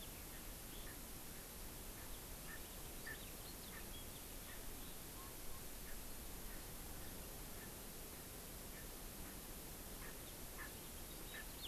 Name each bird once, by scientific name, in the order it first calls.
Pternistis erckelii, Haemorhous mexicanus